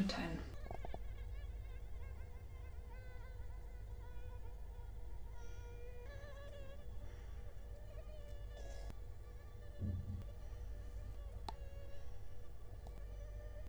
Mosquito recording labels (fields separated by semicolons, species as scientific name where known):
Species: Culex quinquefasciatus; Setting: cup